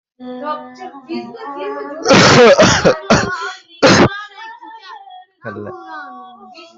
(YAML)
expert_labels:
- quality: poor
  cough_type: unknown
  dyspnea: false
  wheezing: false
  stridor: false
  choking: false
  congestion: false
  nothing: true
  diagnosis: lower respiratory tract infection
  severity: mild
gender: female
respiratory_condition: true
fever_muscle_pain: true
status: COVID-19